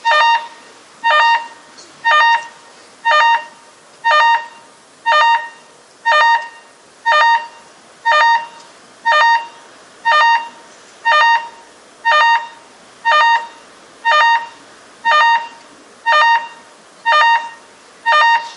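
0.0s An alarm beeps rhythmically with pauses between the beeps. 18.6s

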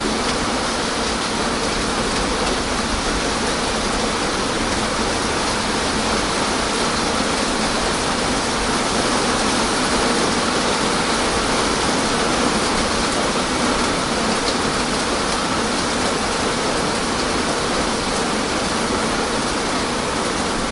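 0.1s Strong rain pouring on a hard surface. 20.7s

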